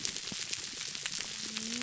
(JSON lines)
{"label": "biophony, whup", "recorder": "SoundTrap 300"}